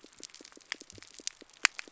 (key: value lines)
label: biophony
recorder: SoundTrap 300